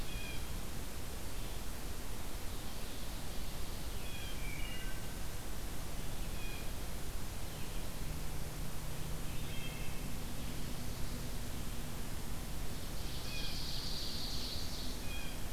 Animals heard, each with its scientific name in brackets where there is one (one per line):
Wood Thrush (Hylocichla mustelina)
Ovenbird (Seiurus aurocapilla)
Blue Jay (Cyanocitta cristata)